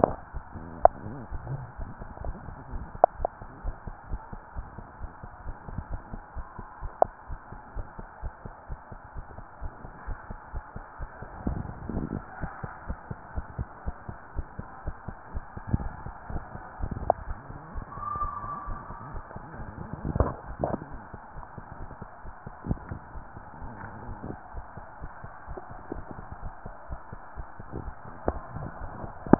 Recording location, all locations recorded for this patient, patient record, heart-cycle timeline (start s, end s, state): tricuspid valve (TV)
aortic valve (AV)+pulmonary valve (PV)+tricuspid valve (TV)
#Age: Child
#Sex: Female
#Height: 132.0 cm
#Weight: 41.1 kg
#Pregnancy status: False
#Murmur: Absent
#Murmur locations: nan
#Most audible location: nan
#Systolic murmur timing: nan
#Systolic murmur shape: nan
#Systolic murmur grading: nan
#Systolic murmur pitch: nan
#Systolic murmur quality: nan
#Diastolic murmur timing: nan
#Diastolic murmur shape: nan
#Diastolic murmur grading: nan
#Diastolic murmur pitch: nan
#Diastolic murmur quality: nan
#Outcome: Normal
#Campaign: 2015 screening campaign
0.00	12.40	unannotated
12.40	12.50	S1
12.50	12.62	systole
12.62	12.72	S2
12.72	12.88	diastole
12.88	12.98	S1
12.98	13.06	systole
13.06	13.18	S2
13.18	13.34	diastole
13.34	13.48	S1
13.48	13.56	systole
13.56	13.70	S2
13.70	13.84	diastole
13.84	13.98	S1
13.98	14.06	systole
14.06	14.16	S2
14.16	14.30	diastole
14.30	14.44	S1
14.44	14.54	systole
14.54	14.66	S2
14.66	14.84	diastole
14.84	14.96	S1
14.96	15.04	systole
15.04	15.16	S2
15.16	15.34	diastole
15.34	15.46	S1
15.46	15.56	systole
15.56	15.64	S2
15.64	15.80	diastole
15.80	15.94	S1
15.94	16.04	systole
16.04	16.14	S2
16.14	16.30	diastole
16.30	16.44	S1
16.44	16.52	systole
16.52	16.62	S2
16.62	16.78	diastole
16.78	16.90	S1
16.90	17.00	systole
17.00	17.14	S2
17.14	17.28	diastole
17.28	17.36	S1
17.36	17.48	systole
17.48	17.56	S2
17.56	17.72	diastole
17.72	17.86	S1
17.86	17.96	systole
17.96	18.04	S2
18.04	18.20	diastole
18.20	18.32	S1
18.32	18.40	systole
18.40	18.50	S2
18.50	18.66	diastole
18.66	18.80	S1
18.80	18.88	systole
18.88	18.96	S2
18.96	19.10	diastole
19.10	19.24	S1
19.24	19.36	systole
19.36	19.44	S2
19.44	19.58	diastole
19.58	19.70	S1
19.70	19.78	systole
19.78	19.88	S2
19.88	29.39	unannotated